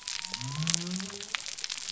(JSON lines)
{"label": "biophony", "recorder": "SoundTrap 300"}